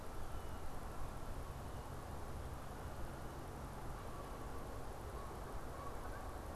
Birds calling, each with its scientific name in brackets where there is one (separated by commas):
Canada Goose (Branta canadensis)